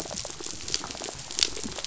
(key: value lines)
label: biophony, rattle
recorder: SoundTrap 500